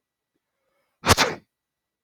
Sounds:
Sneeze